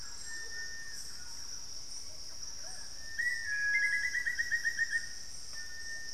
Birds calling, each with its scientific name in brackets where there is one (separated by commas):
Amazonian Motmot (Momotus momota), White-throated Toucan (Ramphastos tucanus), unidentified bird, Black-faced Antthrush (Formicarius analis), Cinereous Tinamou (Crypturellus cinereus), Plumbeous Pigeon (Patagioenas plumbea), Hauxwell's Thrush (Turdus hauxwelli), Thrush-like Wren (Campylorhynchus turdinus)